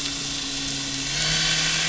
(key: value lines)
label: anthrophony, boat engine
recorder: SoundTrap 500